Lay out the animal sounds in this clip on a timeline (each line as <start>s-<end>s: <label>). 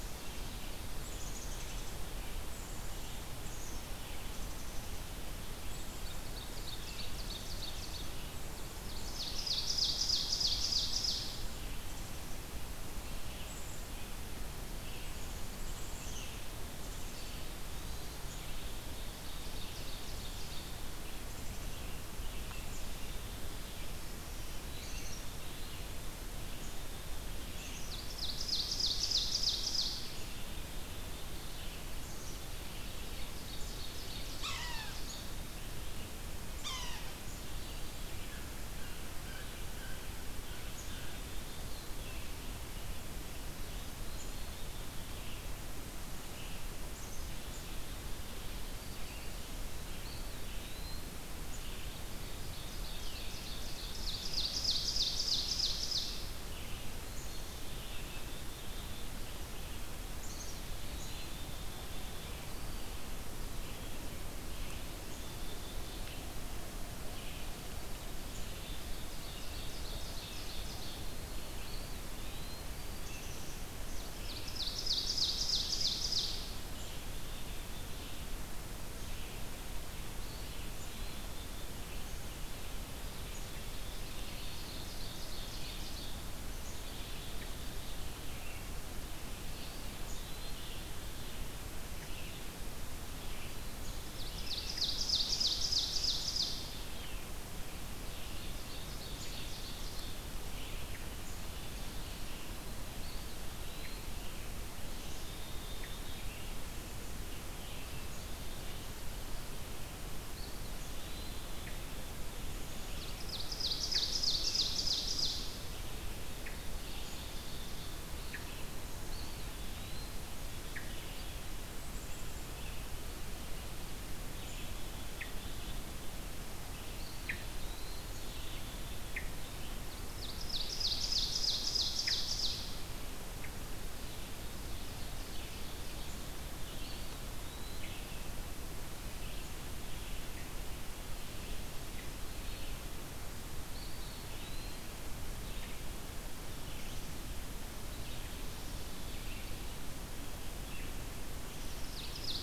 0.0s-0.6s: Black-capped Chickadee (Poecile atricapillus)
0.0s-8.3s: Red-eyed Vireo (Vireo olivaceus)
0.9s-2.0s: Black-capped Chickadee (Poecile atricapillus)
2.5s-3.1s: Black-capped Chickadee (Poecile atricapillus)
3.4s-5.1s: Black-capped Chickadee (Poecile atricapillus)
5.9s-11.4s: Ovenbird (Seiurus aurocapilla)
9.1s-67.6s: Red-eyed Vireo (Vireo olivaceus)
11.7s-18.5s: Black-capped Chickadee (Poecile atricapillus)
17.1s-18.2s: Eastern Wood-Pewee (Contopus virens)
18.6s-20.7s: Ovenbird (Seiurus aurocapilla)
21.2s-21.7s: Black-capped Chickadee (Poecile atricapillus)
22.7s-23.7s: Black-capped Chickadee (Poecile atricapillus)
24.6s-25.9s: Eastern Wood-Pewee (Contopus virens)
24.7s-25.9s: Black-capped Chickadee (Poecile atricapillus)
26.5s-28.1s: Black-capped Chickadee (Poecile atricapillus)
27.6s-30.4s: Ovenbird (Seiurus aurocapilla)
30.2s-31.4s: Black-capped Chickadee (Poecile atricapillus)
32.0s-32.9s: Black-capped Chickadee (Poecile atricapillus)
33.1s-35.3s: Ovenbird (Seiurus aurocapilla)
34.2s-35.0s: Yellow-bellied Sapsucker (Sphyrapicus varius)
36.5s-37.1s: Yellow-bellied Sapsucker (Sphyrapicus varius)
38.1s-40.1s: Blue Jay (Cyanocitta cristata)
40.7s-41.7s: Black-capped Chickadee (Poecile atricapillus)
41.4s-42.0s: Eastern Wood-Pewee (Contopus virens)
46.8s-47.9s: Black-capped Chickadee (Poecile atricapillus)
49.9s-51.2s: Eastern Wood-Pewee (Contopus virens)
51.5s-52.3s: Black-capped Chickadee (Poecile atricapillus)
52.3s-56.3s: Ovenbird (Seiurus aurocapilla)
52.6s-53.6s: Eastern Wood-Pewee (Contopus virens)
57.2s-59.1s: Black-capped Chickadee (Poecile atricapillus)
60.1s-61.4s: Eastern Wood-Pewee (Contopus virens)
60.1s-62.4s: Black-capped Chickadee (Poecile atricapillus)
65.0s-65.9s: Black-capped Chickadee (Poecile atricapillus)
68.3s-68.9s: Black-capped Chickadee (Poecile atricapillus)
68.8s-71.1s: Ovenbird (Seiurus aurocapilla)
69.2s-127.1s: Red-eyed Vireo (Vireo olivaceus)
71.4s-72.6s: Eastern Wood-Pewee (Contopus virens)
72.9s-74.1s: Black-capped Chickadee (Poecile atricapillus)
73.9s-76.6s: Ovenbird (Seiurus aurocapilla)
76.7s-78.2s: Black-capped Chickadee (Poecile atricapillus)
80.1s-81.3s: Eastern Wood-Pewee (Contopus virens)
80.8s-82.0s: Black-capped Chickadee (Poecile atricapillus)
83.2s-84.0s: Black-capped Chickadee (Poecile atricapillus)
83.8s-86.4s: Ovenbird (Seiurus aurocapilla)
86.6s-88.0s: Black-capped Chickadee (Poecile atricapillus)
89.5s-90.6s: Eastern Wood-Pewee (Contopus virens)
90.0s-91.3s: Black-capped Chickadee (Poecile atricapillus)
94.1s-96.9s: Ovenbird (Seiurus aurocapilla)
97.8s-100.3s: Ovenbird (Seiurus aurocapilla)
102.9s-104.1s: Eastern Wood-Pewee (Contopus virens)
104.9s-106.2s: Black-capped Chickadee (Poecile atricapillus)
110.3s-111.5s: Eastern Wood-Pewee (Contopus virens)
111.6s-127.4s: Hermit Thrush (Catharus guttatus)
112.8s-115.8s: Ovenbird (Seiurus aurocapilla)
116.3s-118.1s: Ovenbird (Seiurus aurocapilla)
119.0s-120.2s: Eastern Wood-Pewee (Contopus virens)
121.7s-122.5s: Black-capped Chickadee (Poecile atricapillus)
126.9s-128.3s: Eastern Wood-Pewee (Contopus virens)
128.1s-152.4s: Red-eyed Vireo (Vireo olivaceus)
128.9s-133.7s: Hermit Thrush (Catharus guttatus)
129.9s-132.7s: Ovenbird (Seiurus aurocapilla)
134.3s-136.3s: Ovenbird (Seiurus aurocapilla)
136.7s-138.2s: Eastern Wood-Pewee (Contopus virens)
143.5s-145.1s: Eastern Wood-Pewee (Contopus virens)
151.8s-152.4s: Ovenbird (Seiurus aurocapilla)